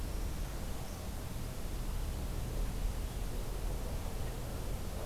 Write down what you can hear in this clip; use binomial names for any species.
forest ambience